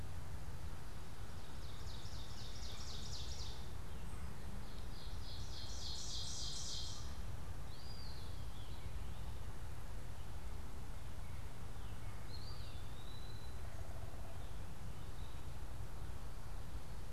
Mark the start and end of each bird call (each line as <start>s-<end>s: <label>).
1.4s-7.3s: Ovenbird (Seiurus aurocapilla)
7.6s-13.8s: Eastern Wood-Pewee (Contopus virens)
13.4s-14.6s: unidentified bird